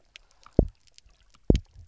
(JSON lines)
{"label": "biophony, double pulse", "recorder": "SoundTrap 300"}